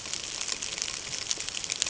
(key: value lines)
label: ambient
recorder: HydroMoth